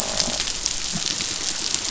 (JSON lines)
{"label": "biophony, croak", "recorder": "SoundTrap 500"}